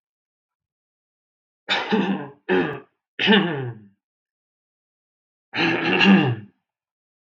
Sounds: Throat clearing